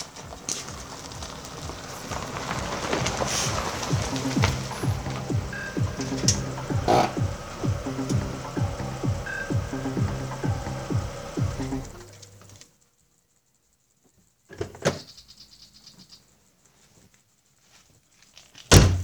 What slams shut?
door